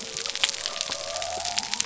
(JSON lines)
{"label": "biophony", "recorder": "SoundTrap 300"}